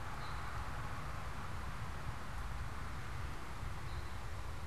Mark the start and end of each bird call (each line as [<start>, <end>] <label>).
[0.00, 4.60] unidentified bird